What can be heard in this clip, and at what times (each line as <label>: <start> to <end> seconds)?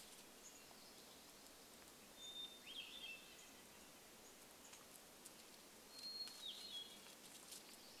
Chestnut-backed Chickadee call: 0 to 2 seconds
warbler song: 0 to 2 seconds
unidentified bird chip note: 2 to 6 seconds
Hermit Thrush song: 2 to 8 seconds